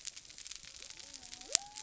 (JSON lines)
{"label": "biophony", "recorder": "SoundTrap 300"}